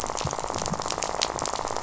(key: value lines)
label: biophony, rattle
recorder: SoundTrap 500